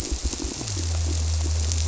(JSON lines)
{"label": "biophony", "recorder": "SoundTrap 300"}